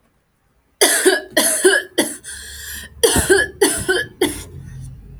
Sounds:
Cough